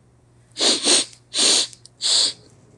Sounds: Sniff